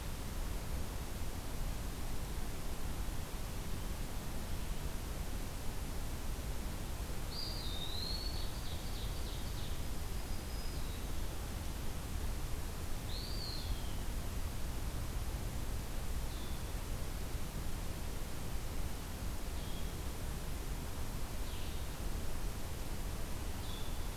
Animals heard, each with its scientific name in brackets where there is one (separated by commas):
Ovenbird (Seiurus aurocapilla), Blue-headed Vireo (Vireo solitarius), Eastern Wood-Pewee (Contopus virens), Red-eyed Vireo (Vireo olivaceus), Black-throated Green Warbler (Setophaga virens)